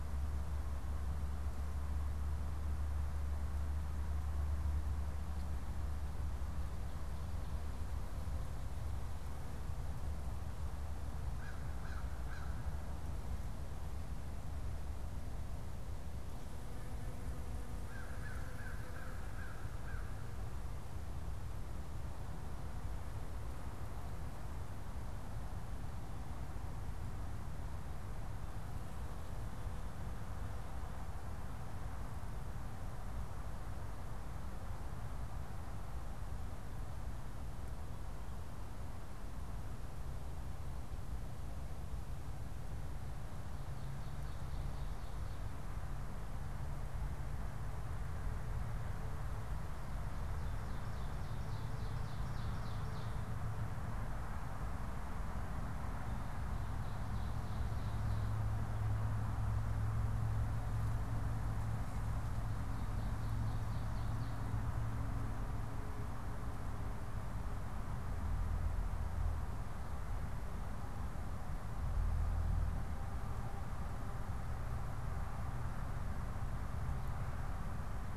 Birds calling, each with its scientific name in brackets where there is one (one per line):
Ovenbird (Seiurus aurocapilla)
American Crow (Corvus brachyrhynchos)